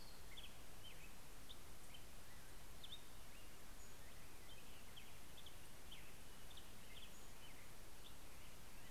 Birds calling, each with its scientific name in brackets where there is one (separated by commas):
Black-headed Grosbeak (Pheucticus melanocephalus), Pacific-slope Flycatcher (Empidonax difficilis), Orange-crowned Warbler (Leiothlypis celata)